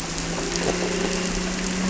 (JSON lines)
{"label": "anthrophony, boat engine", "recorder": "SoundTrap 300"}